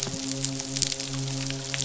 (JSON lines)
{"label": "biophony, midshipman", "recorder": "SoundTrap 500"}